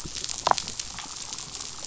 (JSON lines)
{"label": "biophony, damselfish", "recorder": "SoundTrap 500"}